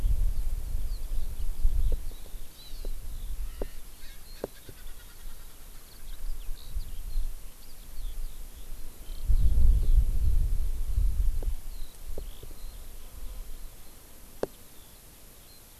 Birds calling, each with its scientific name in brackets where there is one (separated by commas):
Erckel's Francolin (Pternistis erckelii), Eurasian Skylark (Alauda arvensis)